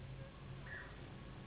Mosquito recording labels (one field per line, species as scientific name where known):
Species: Anopheles gambiae s.s.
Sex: female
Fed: unfed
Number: one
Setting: insect culture